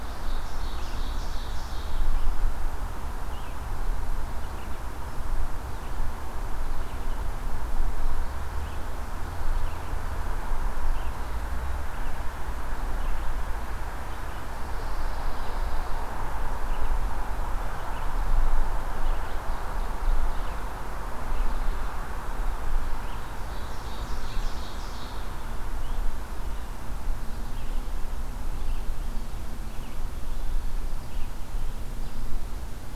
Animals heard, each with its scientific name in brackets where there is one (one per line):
Red-eyed Vireo (Vireo olivaceus)
Ovenbird (Seiurus aurocapilla)
Blackburnian Warbler (Setophaga fusca)
Pine Warbler (Setophaga pinus)